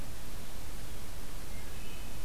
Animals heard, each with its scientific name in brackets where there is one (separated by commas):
Wood Thrush (Hylocichla mustelina)